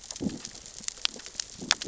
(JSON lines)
{"label": "biophony, growl", "recorder": "SoundTrap 600 or HydroMoth"}